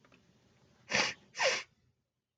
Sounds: Sniff